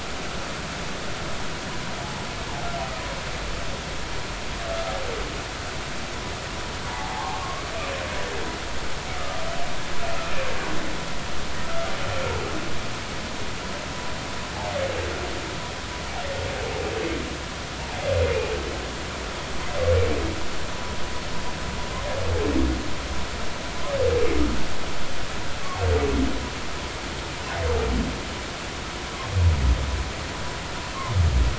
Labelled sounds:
6.9	7.6	humpback whale, 0.80 to 1.2 kHz
9.2	9.4	humpback whale, 1.2 to 1.3 kHz
11.6	11.9	humpback whale, 1.2 to 1.5 kHz

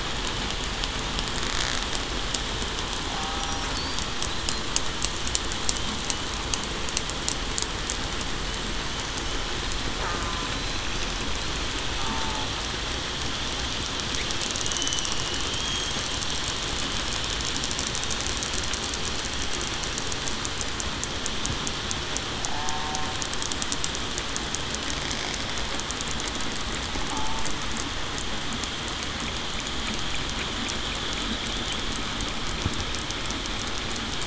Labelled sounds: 12.0	12.4	killer whale, southern resident, 0.84 to 0.94 kHz
14.6	15.1	killer whale, southern resident, 2.8 to 3.0 kHz
15.6	15.9	killer whale, southern resident, 3.2 to 3.3 kHz
22.5	22.9	killer whale, southern resident, 0.70 to 0.94 kHz
27.1	27.4	killer whale, southern resident, 0.84 to 0.94 kHz

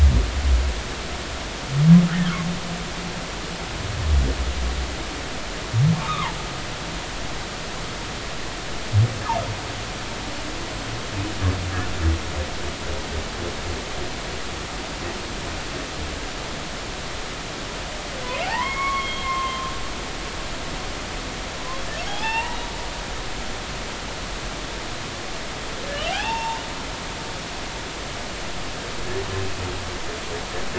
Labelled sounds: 5.9	6.3	humpback whale, 0.83 to 1.3 kHz
18.4	19.7	humpback whale, 0.80 to 3.4 kHz
22.2	22.7	humpback whale, 1.7 to 3.0 kHz
23.1	23.6	humpback whale, 0.80 to 3.7 kHz
26.1	26.6	humpback whale, 0.80 to 2.8 kHz

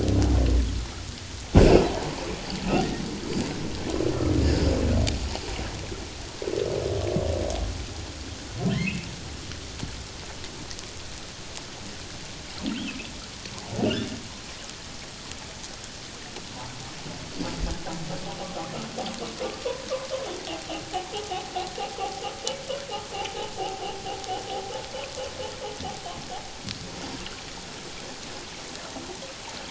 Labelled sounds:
8.7	9.0	humpback whale, 1.7 to 2.3 kHz
13.9	14.1	humpback whale, 1.3 to 1.8 kHz
20.5	20.7	humpback whale, 0.78 to 0.88 kHz

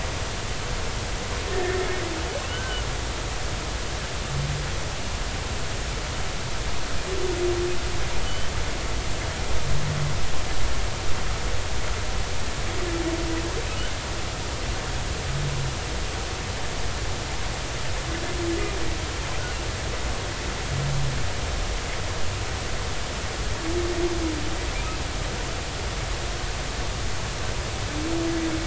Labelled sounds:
1.5	1.8	humpback whale, 1.7 to 1.9 kHz
2.5	2.8	humpback whale, 1.4 to 1.6 kHz
8.2	8.5	humpback whale, 2.9 to 3.1 kHz

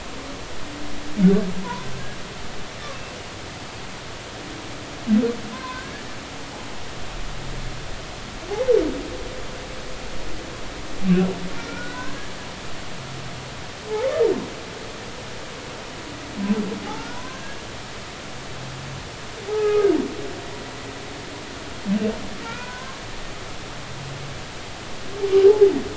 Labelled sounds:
5.5	5.9	humpback whale, 0.96 to 1.1 kHz
11.6	12.3	humpback whale, 0.96 to 1.8 kHz
16.8	17.7	humpback whale, 0.80 to 1.8 kHz
19.5	19.9	humpback whale, 0.80 to 1.3 kHz
22.4	23.0	humpback whale, 0.93 to 2.6 kHz
25.4	25.7	humpback whale, 0.80 to 0.90 kHz

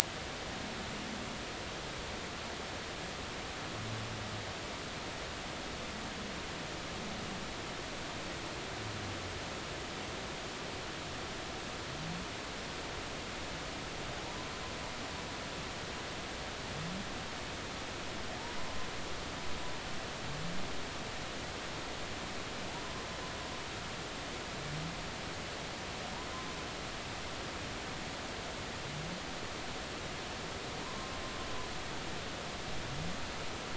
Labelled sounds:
14.2	14.5	humpback whale, 0.80 to 1.1 kHz
30.8	31.2	humpback whale, 0.90 to 1.1 kHz

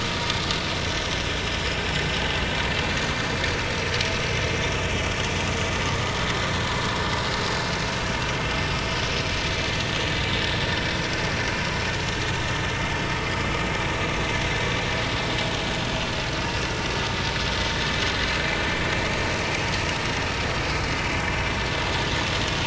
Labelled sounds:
6.9	7.2	vessel noise, 5.2 to 5.3 kHz
11.6	11.9	vessel noise, 5.5 to 5.7 kHz

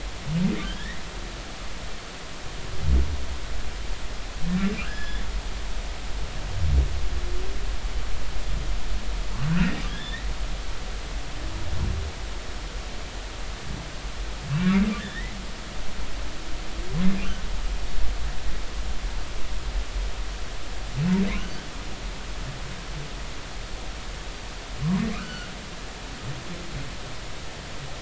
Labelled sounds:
0.6	1.0	humpback whale, 1.5 to 2.1 kHz
4.8	5.3	humpback whale, 1.2 to 5.2 kHz
9.9	10.3	humpback whale, 1.6 to 3.6 kHz
14.6	15.4	humpback whale, 1.6 to 2.5 kHz
25.1	25.5	humpback whale, 1.2 to 3.0 kHz

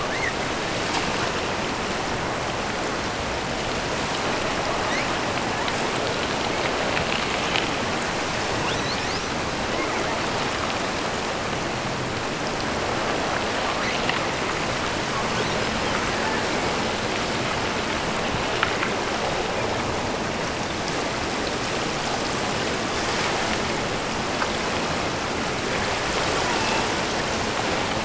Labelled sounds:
0.0	0.4	killer whale, offshore, 1.3 to 2.2 kHz
4.7	5.2	killer whale, offshore, 1.6 to 8.0 kHz
8.6	9.4	killer whale, offshore, 2.4 to 7.2 kHz
13.7	14.3	killer whale, offshore, 1.4 to 4.6 kHz
15.2	15.7	killer whale, offshore, 2.4 to 4.3 kHz

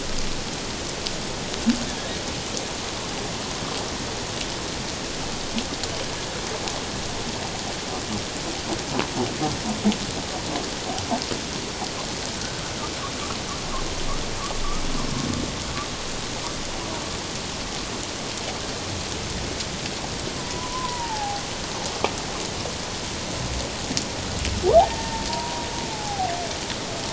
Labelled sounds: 12.4	12.6	humpback whale, 1.4 to 1.6 kHz
20.4	21.4	humpback whale, 0.78 to 1.1 kHz
24.9	26.3	humpback whale, 0.78 to 1.9 kHz

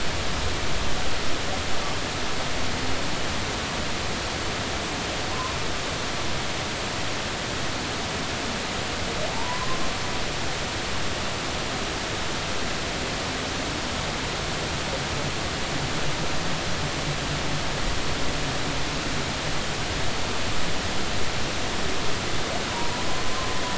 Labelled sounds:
5.3	5.5	humpback whale, 0.93 to 1.1 kHz
9.3	9.8	humpback whale, 0.80 to 1.1 kHz

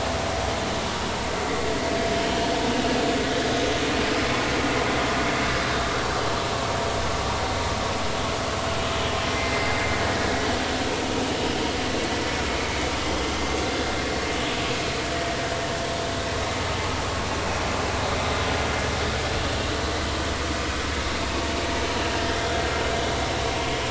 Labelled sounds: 9.3	9.9	vessel noise, 2.0 to 2.2 kHz

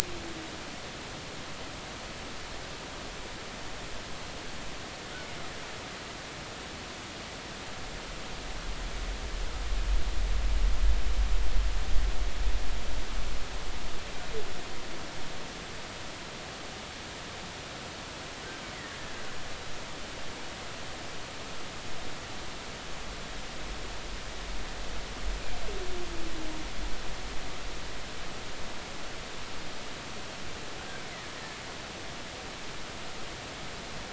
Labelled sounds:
31.0	31.3	killer whale, Bigg's (transient), 1.8 to 2.3 kHz

